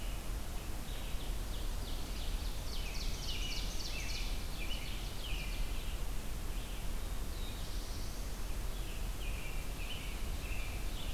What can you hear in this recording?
Red-eyed Vireo, Ovenbird, American Robin, Black-throated Blue Warbler